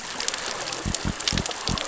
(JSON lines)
{"label": "biophony", "recorder": "SoundTrap 600 or HydroMoth"}